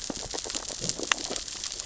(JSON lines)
{"label": "biophony, sea urchins (Echinidae)", "recorder": "SoundTrap 600 or HydroMoth"}